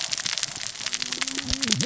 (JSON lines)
{"label": "biophony, cascading saw", "recorder": "SoundTrap 600 or HydroMoth"}